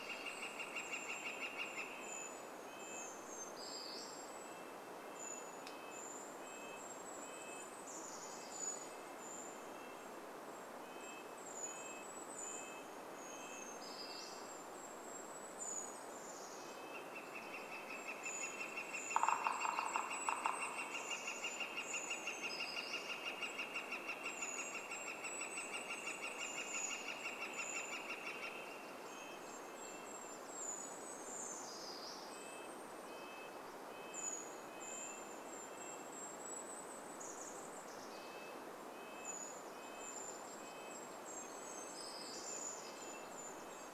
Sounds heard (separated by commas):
Brown Creeper song, woodpecker drumming, Golden-crowned Kinglet call, Northern Flicker call, Red-breasted Nuthatch song, Golden-crowned Kinglet song, Brown Creeper call